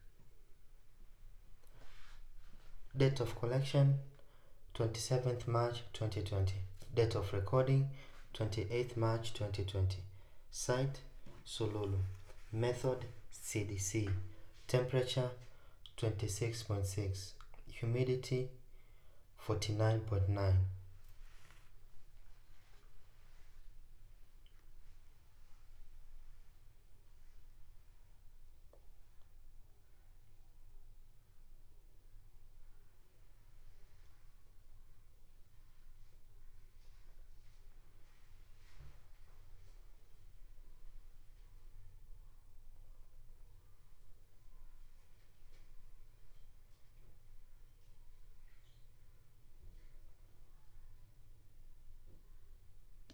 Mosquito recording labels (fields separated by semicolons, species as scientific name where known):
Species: no mosquito; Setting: cup